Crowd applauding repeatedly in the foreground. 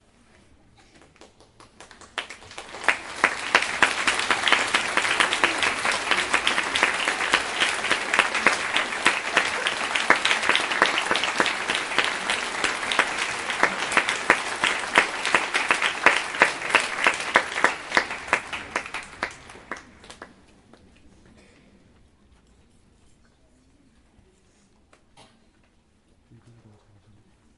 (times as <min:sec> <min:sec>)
0:02.1 0:20.3